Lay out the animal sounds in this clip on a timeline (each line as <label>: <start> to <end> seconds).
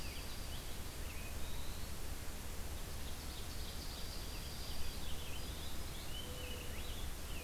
Dark-eyed Junco (Junco hyemalis): 0.0 to 0.7 seconds
Purple Finch (Haemorhous purpureus): 0.0 to 1.4 seconds
Eastern Wood-Pewee (Contopus virens): 1.2 to 2.0 seconds
Ovenbird (Seiurus aurocapilla): 2.7 to 4.3 seconds
Dark-eyed Junco (Junco hyemalis): 3.6 to 5.1 seconds
Purple Finch (Haemorhous purpureus): 3.9 to 7.4 seconds
Black-throated Green Warbler (Setophaga virens): 5.1 to 6.0 seconds